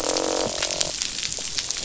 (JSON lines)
{"label": "biophony, croak", "recorder": "SoundTrap 500"}